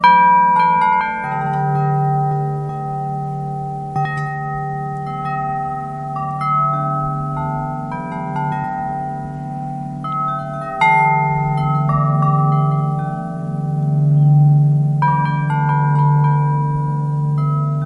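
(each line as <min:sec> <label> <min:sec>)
0:00.0 A glockenspiel is playing a song nearby. 0:17.9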